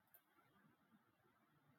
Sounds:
Laughter